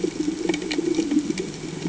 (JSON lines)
{"label": "anthrophony, boat engine", "recorder": "HydroMoth"}